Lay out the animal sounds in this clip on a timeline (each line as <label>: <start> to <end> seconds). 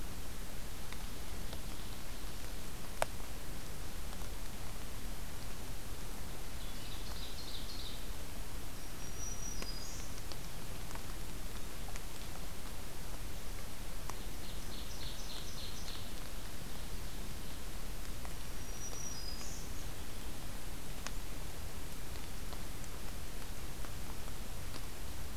Ovenbird (Seiurus aurocapilla): 1.0 to 2.3 seconds
Ovenbird (Seiurus aurocapilla): 6.6 to 8.0 seconds
Black-throated Green Warbler (Setophaga virens): 8.8 to 10.1 seconds
Ovenbird (Seiurus aurocapilla): 14.1 to 17.7 seconds
Black-throated Green Warbler (Setophaga virens): 18.3 to 19.7 seconds